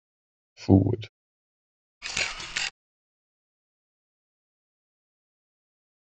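At 0.68 seconds, a voice says "forward." Then at 2.01 seconds, the sound of a camera can be heard.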